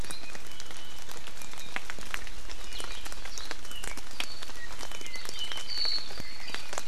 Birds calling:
Iiwi (Drepanis coccinea), Apapane (Himatione sanguinea)

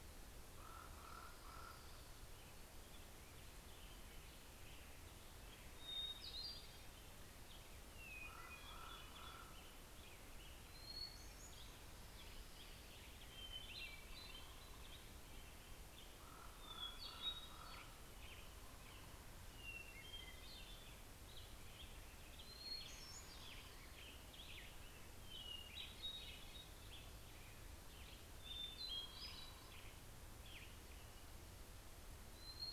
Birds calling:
Common Raven (Corvus corax), Western Tanager (Piranga ludoviciana), American Robin (Turdus migratorius), Hermit Thrush (Catharus guttatus)

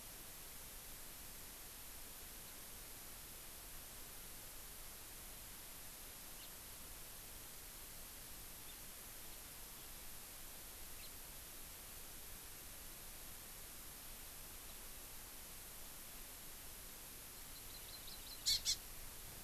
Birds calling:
House Finch (Haemorhous mexicanus), Hawaii Amakihi (Chlorodrepanis virens)

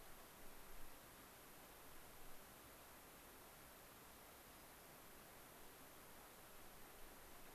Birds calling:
White-crowned Sparrow (Zonotrichia leucophrys)

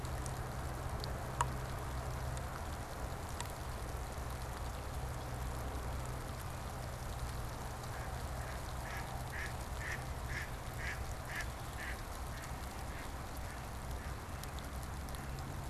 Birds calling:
Mallard (Anas platyrhynchos)

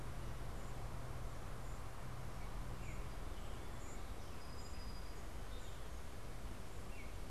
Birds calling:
Song Sparrow (Melospiza melodia), American Robin (Turdus migratorius)

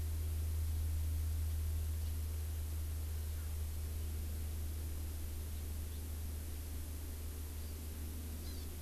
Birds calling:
Hawaii Amakihi (Chlorodrepanis virens)

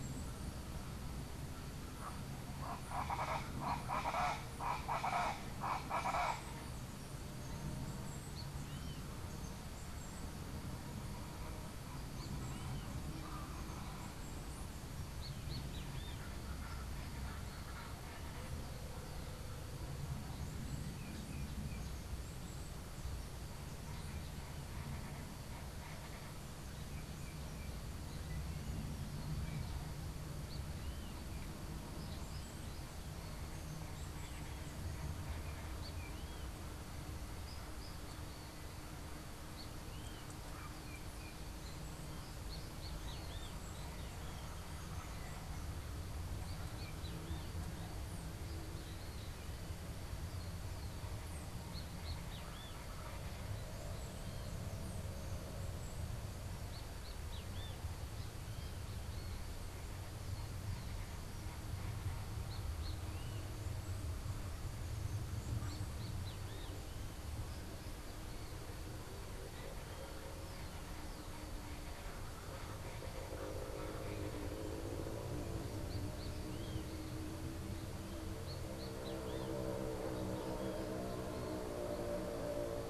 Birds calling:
Colombian Chachalaca (Ortalis columbiana), Great Kiskadee (Pitangus sulphuratus)

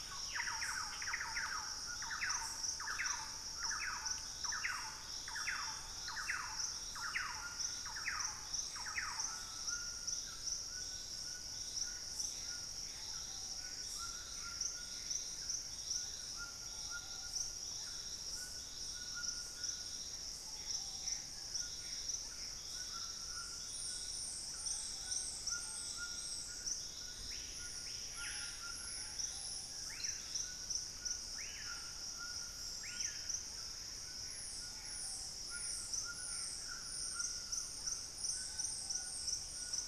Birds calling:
Gray Antbird (Cercomacra cinerascens), Plumbeous Pigeon (Patagioenas plumbea), Thrush-like Wren (Campylorhynchus turdinus), White-throated Toucan (Ramphastos tucanus), Screaming Piha (Lipaugus vociferans)

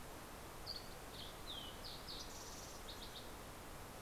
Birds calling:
Dusky Flycatcher (Empidonax oberholseri), Fox Sparrow (Passerella iliaca)

